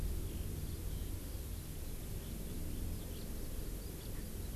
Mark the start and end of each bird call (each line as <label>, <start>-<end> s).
Eurasian Skylark (Alauda arvensis), 0.0-4.5 s